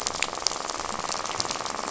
{"label": "biophony, rattle", "recorder": "SoundTrap 500"}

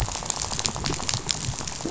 {"label": "biophony, rattle", "recorder": "SoundTrap 500"}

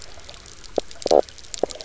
{"label": "biophony, knock croak", "recorder": "SoundTrap 300"}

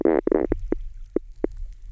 {"label": "biophony, knock croak", "recorder": "SoundTrap 300"}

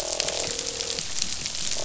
{"label": "biophony, croak", "recorder": "SoundTrap 500"}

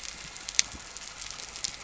{"label": "anthrophony, boat engine", "recorder": "SoundTrap 300"}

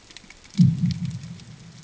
{"label": "anthrophony, bomb", "recorder": "HydroMoth"}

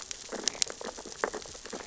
{"label": "biophony, sea urchins (Echinidae)", "recorder": "SoundTrap 600 or HydroMoth"}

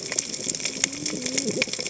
{"label": "biophony, cascading saw", "recorder": "HydroMoth"}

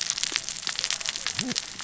{"label": "biophony, cascading saw", "recorder": "SoundTrap 600 or HydroMoth"}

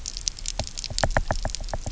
{"label": "biophony, knock", "recorder": "SoundTrap 300"}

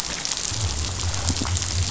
{"label": "biophony", "recorder": "SoundTrap 500"}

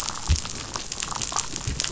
{"label": "biophony, damselfish", "recorder": "SoundTrap 500"}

